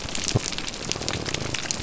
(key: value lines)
label: biophony
recorder: SoundTrap 300